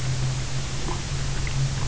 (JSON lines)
{"label": "anthrophony, boat engine", "recorder": "SoundTrap 300"}